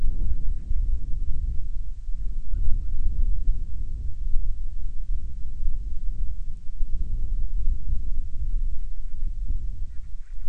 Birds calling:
Band-rumped Storm-Petrel (Hydrobates castro)

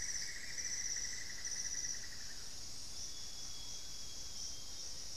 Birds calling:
Cinnamon-throated Woodcreeper (Dendrexetastes rufigula), Amazonian Grosbeak (Cyanoloxia rothschildii)

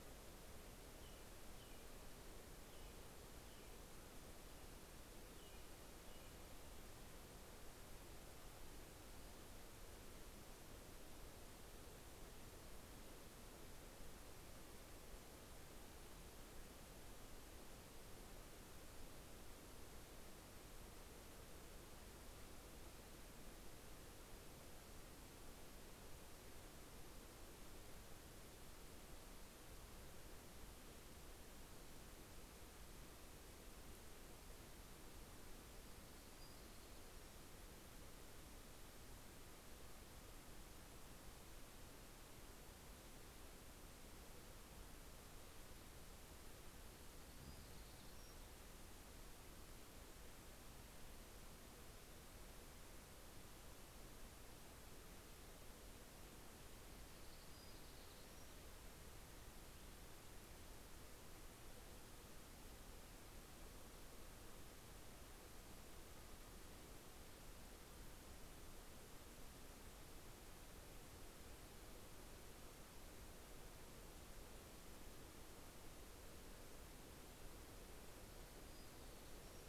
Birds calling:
Townsend's Warbler (Setophaga townsendi), American Robin (Turdus migratorius)

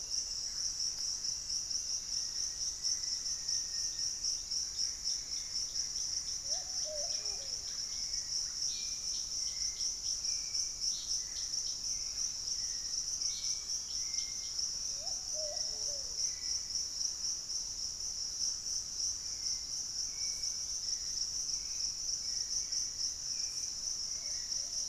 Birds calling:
Hauxwell's Thrush (Turdus hauxwelli), Dusky-capped Greenlet (Pachysylvia hypoxantha), Russet-backed Oropendola (Psarocolius angustifrons), Black-faced Antthrush (Formicarius analis), unidentified bird

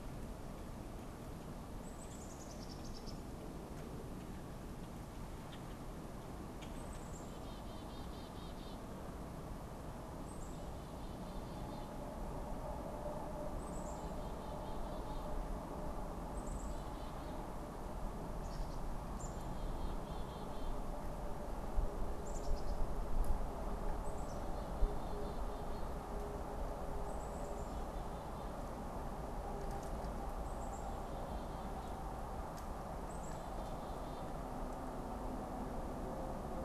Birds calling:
Black-capped Chickadee (Poecile atricapillus), unidentified bird

